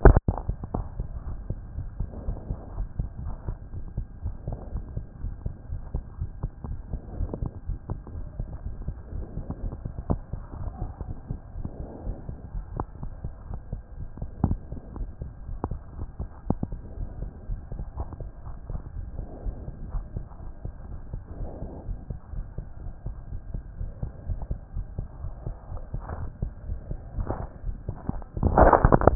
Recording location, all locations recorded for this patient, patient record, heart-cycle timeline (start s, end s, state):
aortic valve (AV)
aortic valve (AV)+pulmonary valve (PV)+tricuspid valve (TV)+mitral valve (MV)
#Age: Child
#Sex: Male
#Height: 123.0 cm
#Weight: 22.4 kg
#Pregnancy status: False
#Murmur: Absent
#Murmur locations: nan
#Most audible location: nan
#Systolic murmur timing: nan
#Systolic murmur shape: nan
#Systolic murmur grading: nan
#Systolic murmur pitch: nan
#Systolic murmur quality: nan
#Diastolic murmur timing: nan
#Diastolic murmur shape: nan
#Diastolic murmur grading: nan
#Diastolic murmur pitch: nan
#Diastolic murmur quality: nan
#Outcome: Normal
#Campaign: 2014 screening campaign
0.00	1.17	unannotated
1.17	1.26	diastole
1.26	1.38	S1
1.38	1.48	systole
1.48	1.58	S2
1.58	1.76	diastole
1.76	1.88	S1
1.88	1.98	systole
1.98	2.08	S2
2.08	2.26	diastole
2.26	2.38	S1
2.38	2.48	systole
2.48	2.58	S2
2.58	2.76	diastole
2.76	2.88	S1
2.88	2.98	systole
2.98	3.08	S2
3.08	3.24	diastole
3.24	3.36	S1
3.36	3.46	systole
3.46	3.56	S2
3.56	3.74	diastole
3.74	3.84	S1
3.84	3.96	systole
3.96	4.06	S2
4.06	4.24	diastole
4.24	4.34	S1
4.34	4.48	systole
4.48	4.58	S2
4.58	4.74	diastole
4.74	4.84	S1
4.84	4.96	systole
4.96	5.04	S2
5.04	5.22	diastole
5.22	5.34	S1
5.34	5.44	systole
5.44	5.54	S2
5.54	5.70	diastole
5.70	5.82	S1
5.82	5.94	systole
5.94	6.04	S2
6.04	6.20	diastole
6.20	6.30	S1
6.30	6.42	systole
6.42	6.50	S2
6.50	6.66	diastole
6.66	6.78	S1
6.78	6.92	systole
6.92	7.00	S2
7.00	7.18	diastole
7.18	7.30	S1
7.30	7.40	systole
7.40	7.50	S2
7.50	7.68	diastole
7.68	7.78	S1
7.78	7.90	systole
7.90	7.98	S2
7.98	8.14	diastole
8.14	8.26	S1
8.26	8.38	systole
8.38	8.48	S2
8.48	8.66	diastole
8.66	8.76	S1
8.76	8.86	systole
8.86	8.94	S2
8.94	9.14	diastole
9.14	9.26	S1
9.26	9.36	systole
9.36	9.46	S2
9.46	9.62	diastole
9.62	9.74	S1
9.74	9.84	systole
9.84	9.94	S2
9.94	10.10	diastole
10.10	10.20	S1
10.20	10.32	systole
10.32	10.42	S2
10.42	10.60	diastole
10.60	10.72	S1
10.72	10.82	systole
10.82	10.92	S2
10.92	11.08	diastole
11.08	11.16	S1
11.16	11.30	systole
11.30	11.39	S2
11.39	11.58	diastole
11.58	11.68	S1
11.68	11.80	systole
11.80	11.88	S2
11.88	12.06	diastole
12.06	12.16	S1
12.16	12.28	systole
12.28	12.36	S2
12.36	12.54	diastole
12.54	12.64	S1
12.64	12.76	systole
12.76	12.86	S2
12.86	13.02	diastole
13.02	13.12	S1
13.12	13.24	systole
13.24	13.32	S2
13.32	13.50	diastole
13.50	13.60	S1
13.60	13.72	systole
13.72	13.82	S2
13.82	13.98	diastole
13.98	14.08	S1
14.08	14.20	systole
14.20	14.28	S2
14.28	14.46	diastole
14.46	14.58	S1
14.58	14.72	systole
14.72	14.80	S2
14.80	14.98	diastole
14.98	15.10	S1
15.10	15.22	systole
15.22	15.30	S2
15.30	15.48	diastole
15.48	15.58	S1
15.58	15.70	systole
15.70	15.80	S2
15.80	15.98	diastole
15.98	16.08	S1
16.08	16.20	systole
16.20	16.28	S2
16.28	16.48	diastole
16.48	16.58	S1
16.58	16.70	systole
16.70	16.80	S2
16.80	17.00	diastole
17.00	17.10	S1
17.10	17.20	systole
17.20	17.30	S2
17.30	17.50	diastole
17.50	17.60	S1
17.60	17.74	systole
17.74	17.84	S2
17.84	17.98	diastole
17.98	18.08	S1
18.08	18.20	systole
18.20	18.30	S2
18.30	18.46	diastole
18.46	18.56	S1
18.56	18.70	systole
18.70	18.80	S2
18.80	18.98	diastole
18.98	29.15	unannotated